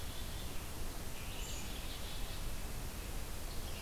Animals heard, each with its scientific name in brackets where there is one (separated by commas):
Black-capped Chickadee (Poecile atricapillus), Red-eyed Vireo (Vireo olivaceus)